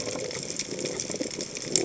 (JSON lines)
{"label": "biophony", "recorder": "HydroMoth"}